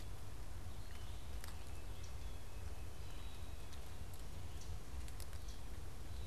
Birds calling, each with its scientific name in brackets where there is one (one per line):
Black-capped Chickadee (Poecile atricapillus)
unidentified bird